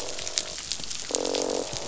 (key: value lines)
label: biophony, croak
recorder: SoundTrap 500